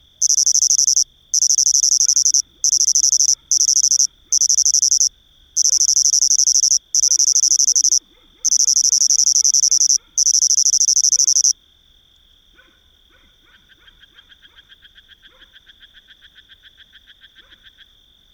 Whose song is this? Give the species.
Svercus palmetorum